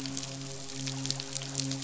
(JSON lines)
{"label": "biophony, midshipman", "recorder": "SoundTrap 500"}